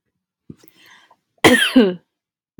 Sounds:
Cough